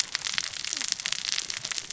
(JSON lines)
{"label": "biophony, cascading saw", "recorder": "SoundTrap 600 or HydroMoth"}